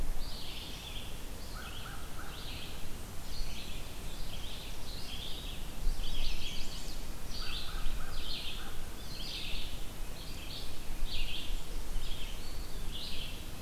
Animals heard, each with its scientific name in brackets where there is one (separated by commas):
American Crow (Corvus brachyrhynchos), Red-eyed Vireo (Vireo olivaceus), Chestnut-sided Warbler (Setophaga pensylvanica)